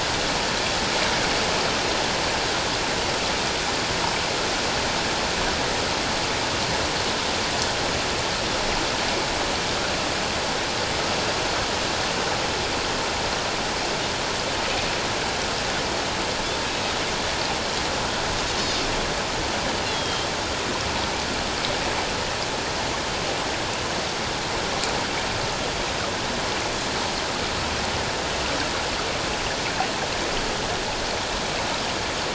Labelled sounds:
16.6	16.9	Pacific white-sided dolphin, 2.5 to 2.7 kHz
19.9	20.3	Pacific white-sided dolphin, 3.1 to 3.5 kHz

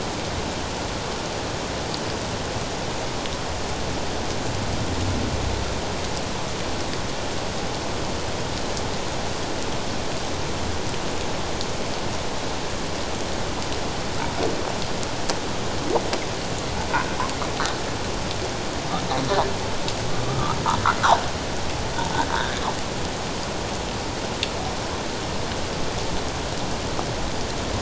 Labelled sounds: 16.9	17.2	humpback whale, 1.4 to 1.7 kHz
20.2	20.6	humpback whale, 1.1 to 1.4 kHz

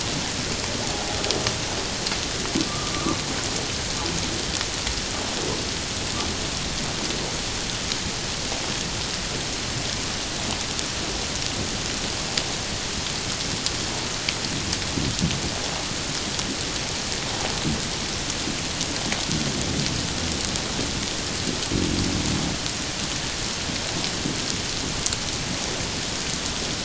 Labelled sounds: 2.7	2.9	humpback whale, 1.1 to 1.3 kHz

